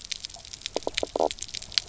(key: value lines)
label: biophony, knock croak
recorder: SoundTrap 300